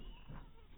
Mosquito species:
mosquito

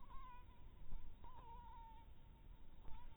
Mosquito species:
Anopheles harrisoni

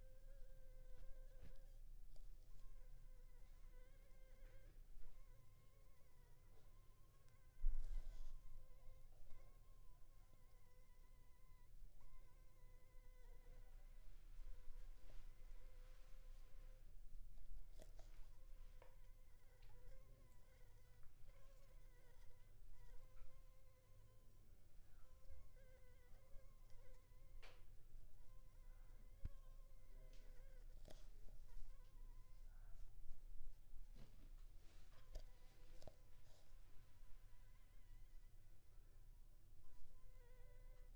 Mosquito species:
Anopheles funestus s.s.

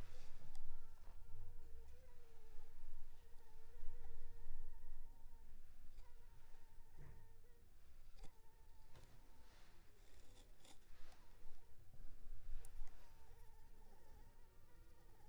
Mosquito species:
Anopheles gambiae s.l.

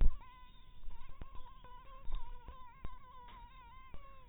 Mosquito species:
mosquito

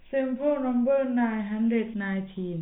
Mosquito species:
no mosquito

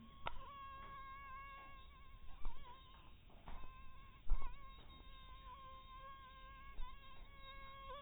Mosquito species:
mosquito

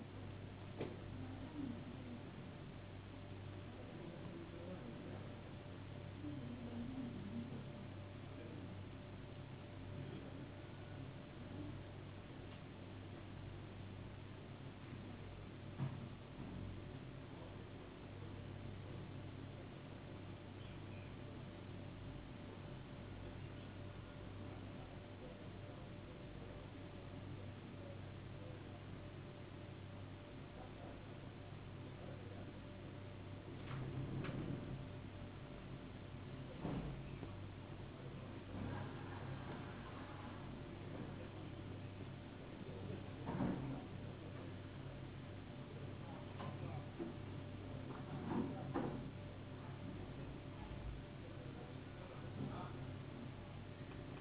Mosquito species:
no mosquito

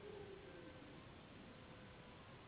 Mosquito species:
Anopheles gambiae s.s.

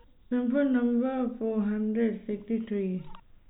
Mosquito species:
no mosquito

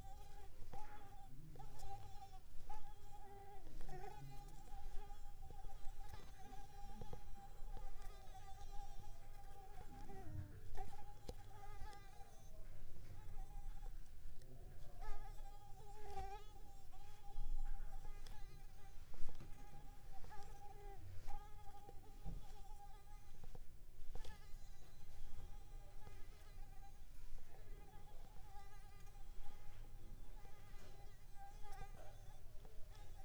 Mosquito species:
Mansonia africanus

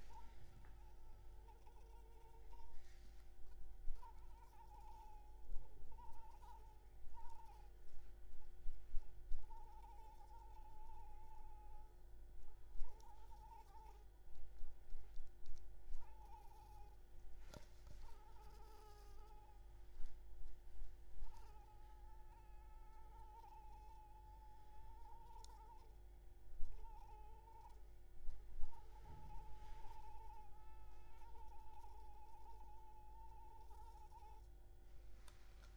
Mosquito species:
Anopheles arabiensis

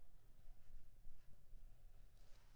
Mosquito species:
Anopheles squamosus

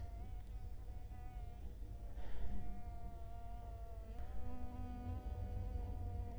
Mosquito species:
Culex quinquefasciatus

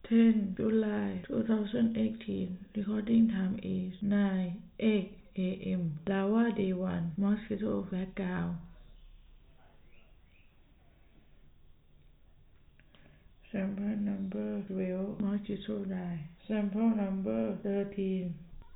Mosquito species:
no mosquito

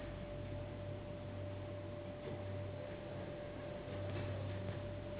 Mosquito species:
Anopheles gambiae s.s.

